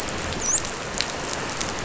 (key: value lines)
label: biophony, dolphin
recorder: SoundTrap 500